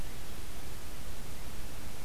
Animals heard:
forest ambience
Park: Marsh-Billings-Rockefeller National Historical Park